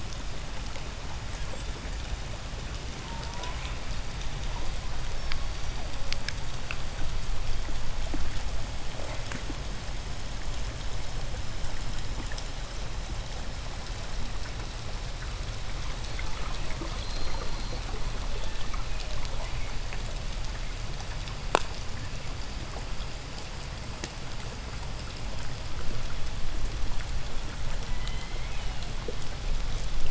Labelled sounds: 1.0	2.2	killer whale, 7.1 to 8.0 kHz
2.8	4.1	killer whale, southern resident, J pod, 0.40 to 4.0 kHz
5.0	6.5	killer whale, southern resident, J pod, 0.35 to 6.2 kHz
16.0	19.9	abiotic sound, 0.06 to 2.5 kHz
16.7	18.2	killer whale, 3.8 to 4.5 kHz
18.1	19.8	killer whale, southern resident, J pod, 1.4 to 4.2 kHz
27.7	29.0	killer whale, southern resident, J pod, 1.3 to 4.5 kHz

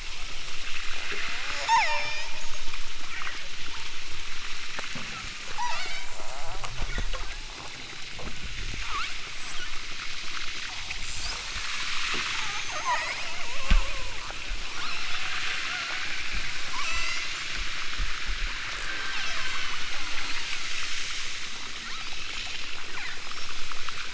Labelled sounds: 1.0	2.4	killer whale, southern Alaska resident, 0.23 to 8.0 kHz
5.5	6.7	killer whale, southern Alaska resident, 0.37 to 7.2 kHz
7.2	7.6	killer whale, southern Alaska resident, 0.23 to 2.1 kHz
8.8	9.8	killer whale, southern Alaska resident, 0.60 to 8.0 kHz
11.3	12.0	killer whale, southern Alaska resident, 5.7 to 8.0 kHz
12.7	14.3	killer whale, southern Alaska resident, 0.43 to 6.4 kHz
14.7	16.2	killer whale, southern Alaska resident, 0.60 to 6.3 kHz
16.6	17.3	killer whale, southern Alaska resident, 0.50 to 8.0 kHz
18.7	20.5	killer whale, southern Alaska resident, 0.37 to 7.7 kHz
21.8	22.3	killer whale, southern Alaska resident, 2.8 to 5.5 kHz
22.8	23.3	killer whale, southern Alaska resident, 0.50 to 3.1 kHz

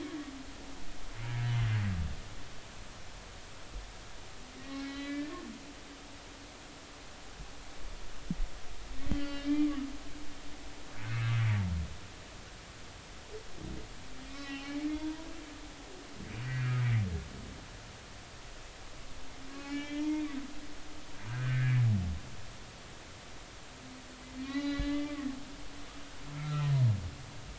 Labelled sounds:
4.7	5.4	humpback whale, 1.7 to 4.0 kHz
9.1	9.7	humpback whale, 1.3 to 4.6 kHz
14.3	15.3	humpback whale, 0.86 to 3.1 kHz
15.6	16.8	humpback whale, 1.6 to 4.4 kHz
19.5	20.2	humpback whale, 0.86 to 3.3 kHz
21.3	21.7	humpback whale, 1.3 to 1.8 kHz
24.5	25.2	humpback whale, 1.1 to 4.1 kHz
25.6	26.8	humpback whale, 1.2 to 2.9 kHz

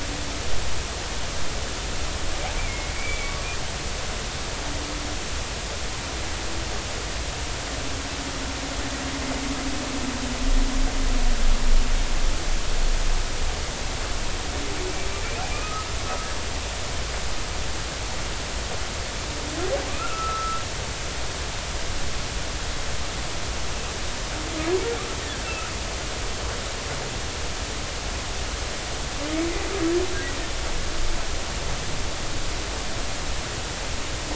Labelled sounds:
2.6	3.4	humpback whale, 2.1 to 2.4 kHz
15.5	15.9	humpback whale, 1.2 to 1.3 kHz
19.9	20.6	humpback whale, 1.1 to 1.4 kHz

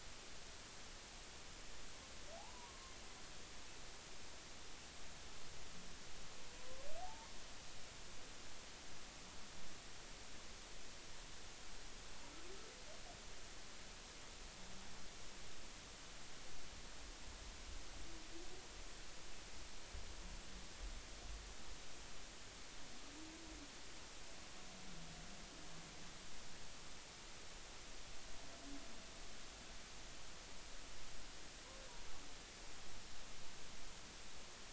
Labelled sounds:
2.4	2.9	humpback whale, 0.80 to 1.2 kHz
7.0	7.3	humpback whale, 0.80 to 0.99 kHz

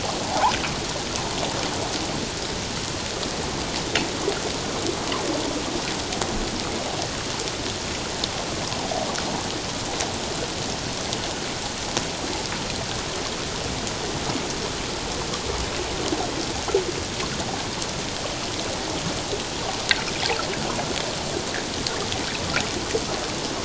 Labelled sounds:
0.3	0.5	fish, 0.78 to 1.1 kHz

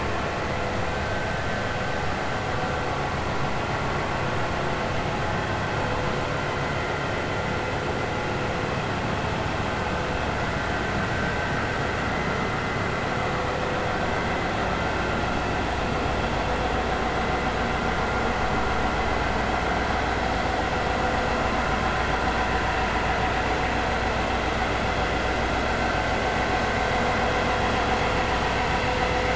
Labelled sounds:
1.0	1.4	vessel noise, 1.5 to 1.6 kHz

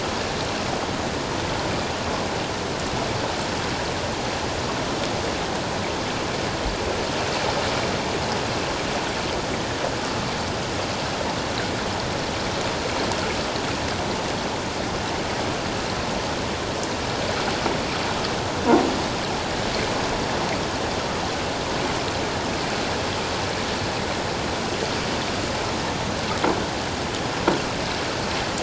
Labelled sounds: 9.5	9.8	water noise, 1.7 to 2.0 kHz

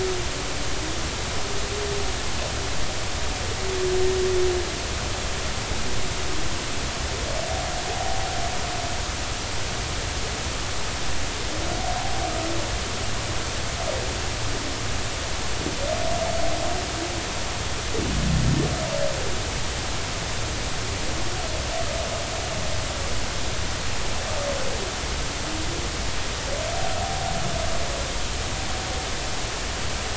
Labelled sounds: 7.9	8.2	humpback whale, 0.80 to 0.86 kHz

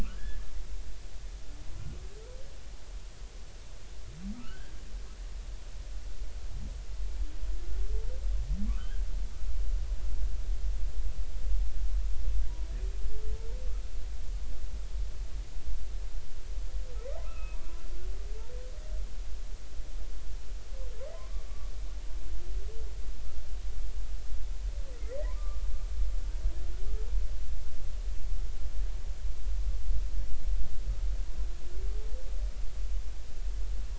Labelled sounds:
0.0	0.4	humpback whale, 1.1 to 1.8 kHz
4.3	4.8	humpback whale, 1.2 to 3.1 kHz
8.6	9.1	humpback whale, 1.1 to 1.7 kHz
17.2	17.6	humpback whale, 1.2 to 2.8 kHz
21.5	21.7	humpback whale, 1.1 to 1.2 kHz
25.2	25.6	humpback whale, 0.90 to 1.2 kHz

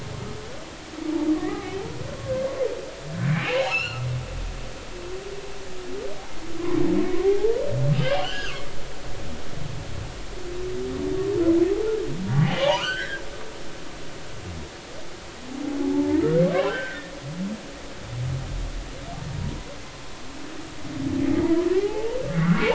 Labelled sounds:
1.3	1.7	humpback whale, 0.80 to 2.1 kHz
3.3	4.1	humpback whale, 1.2 to 4.4 kHz
7.2	7.6	humpback whale, 0.80 to 0.99 kHz
8.0	8.6	humpback whale, 1.3 to 3.4 kHz
11.7	13.2	humpback whale, 0.80 to 6.2 kHz
15.8	17.1	humpback whale, 0.80 to 3.2 kHz
21.7	22.7	humpback whale, 0.80 to 2.3 kHz

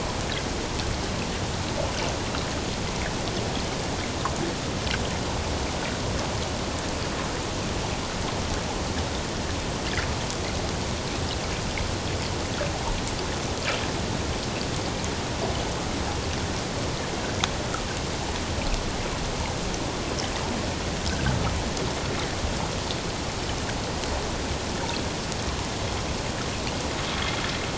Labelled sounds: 27.1	27.4	water noise, 3.1 to 3.4 kHz

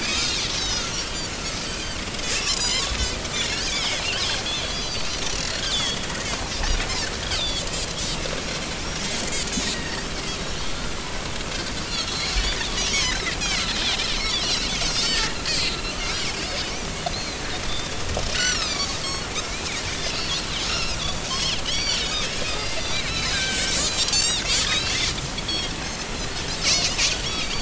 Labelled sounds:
0.0	1.4	Pacific white-sided dolphin, 1.1 to 7.2 kHz
1.7	2.0	Pacific white-sided dolphin, 1.5 to 3.2 kHz
2.4	3.1	Pacific white-sided dolphin, 0.93 to 7.4 kHz
3.7	4.0	Pacific white-sided dolphin, 2.1 to 2.5 kHz
4.5	5.2	Pacific white-sided dolphin, 3.2 to 4.9 kHz
5.6	6.0	Pacific white-sided dolphin, 2.8 to 3.8 kHz
7.4	7.6	Pacific white-sided dolphin, 3.3 to 4.9 kHz
9.7	10.0	Pacific white-sided dolphin, 1.8 to 2.0 kHz
12.1	13.3	Pacific white-sided dolphin, 2.9 to 5.9 kHz
14.2	16.0	Pacific white-sided dolphin, 1.6 to 5.4 kHz
17.1	17.9	Pacific white-sided dolphin, 3.4 to 4.4 kHz
18.3	25.0	Pacific white-sided dolphin, 1.5 to 7.8 kHz
25.5	26.0	Pacific white-sided dolphin, 3.1 to 4.3 kHz
26.7	27.6	Pacific white-sided dolphin, 2.1 to 4.0 kHz

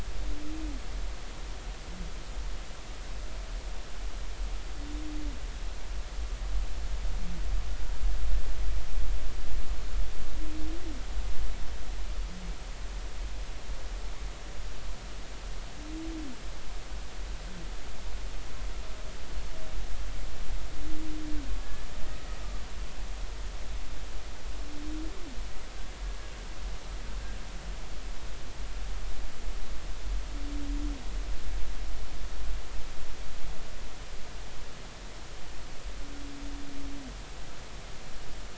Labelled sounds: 21.6	21.9	humpback whale, 1.6 to 1.8 kHz

